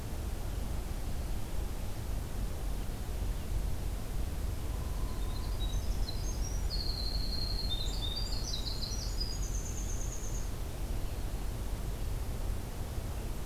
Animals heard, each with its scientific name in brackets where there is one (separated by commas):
Winter Wren (Troglodytes hiemalis)